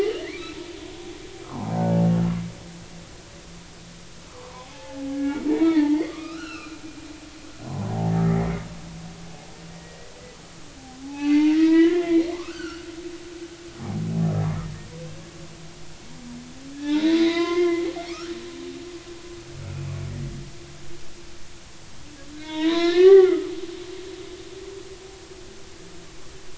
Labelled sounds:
0.2	0.6	humpback whale, 1.8 to 2.4 kHz
1.4	1.7	humpback whale, 0.80 to 1.4 kHz
4.3	6.8	humpback whale, 0.80 to 4.3 kHz
7.7	7.9	humpback whale, 0.96 to 1.1 kHz
8.2	8.7	humpback whale, 1.8 to 2.3 kHz
9.7	10.1	humpback whale, 1.8 to 2.0 kHz
11.0	12.9	humpback whale, 0.80 to 4.6 kHz
16.8	18.3	humpback whale, 0.80 to 5.7 kHz
22.4	23.5	humpback whale, 0.86 to 4.2 kHz

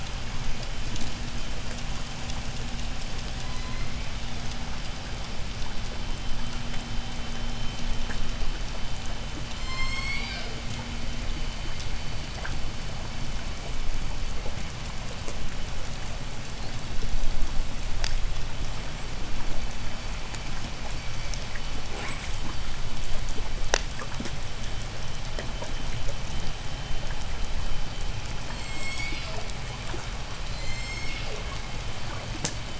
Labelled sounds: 2.9	4.3	killer whale, southern resident, J pod, 0.73 to 6.2 kHz
9.1	11.0	killer whale, southern resident, J pod, 0.60 to 8.0 kHz
21.7	22.6	killer whale, southern resident, J pod, 0.26 to 8.0 kHz
28.1	29.6	killer whale, southern resident, J pod, 1.7 to 8.0 kHz
30.1	31.7	killer whale, southern resident, J pod, 1.7 to 8.0 kHz

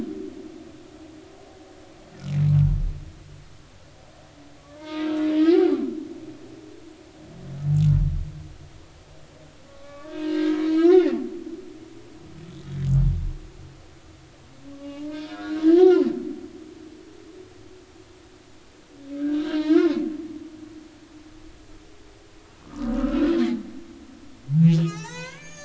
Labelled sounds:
4.8	5.2	humpback whale, 0.86 to 2.3 kHz
5.5	5.8	humpback whale, 0.80 to 0.90 kHz
9.8	11.1	humpback whale, 1.1 to 4.4 kHz
14.7	16.1	humpback whale, 0.80 to 5.7 kHz
19.1	20.0	humpback whale, 0.86 to 4.4 kHz
22.6	23.3	humpback whale, 0.90 to 1.5 kHz
24.8	25.6	humpback whale, 0.80 to 6.7 kHz

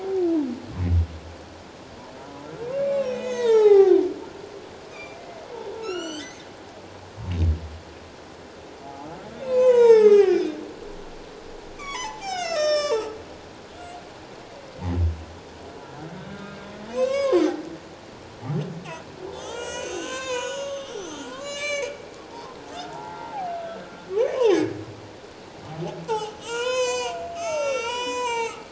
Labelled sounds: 2.2	2.5	humpback whale, 0.91 to 1.0 kHz
2.8	4.0	humpback whale, 0.78 to 8.0 kHz
4.9	6.5	humpback whale, 1.2 to 7.8 kHz
9.4	10.5	humpback whale, 0.81 to 7.9 kHz
11.7	13.1	humpback whale, 0.78 to 8.0 kHz
16.3	16.6	humpback whale, 1.4 to 1.7 kHz
16.9	17.4	humpback whale, 0.88 to 7.9 kHz
19.3	22.0	humpback whale, 0.84 to 7.9 kHz
22.3	22.6	humpback whale, 0.78 to 1.1 kHz
22.9	24.7	humpback whale, 0.78 to 6.4 kHz
26.1	28.7	humpback whale, 0.78 to 7.9 kHz

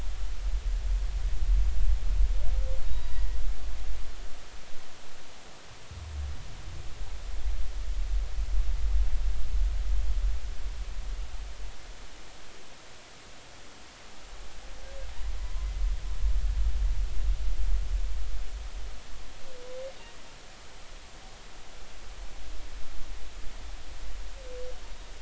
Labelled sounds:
2.8	3.4	humpback whale, 1.9 to 3.9 kHz

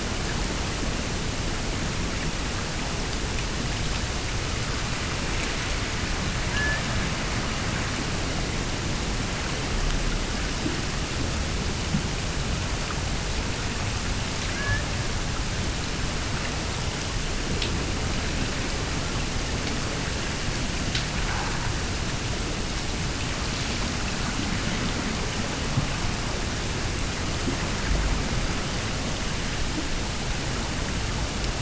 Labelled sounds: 6.5	6.8	killer whale, Bigg's (transient), AT1 transient, 1.6 to 1.8 kHz
14.5	14.8	killer whale, Bigg's (transient), AT1 transient, 1.6 to 1.8 kHz

